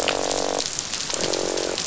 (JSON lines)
{"label": "biophony, croak", "recorder": "SoundTrap 500"}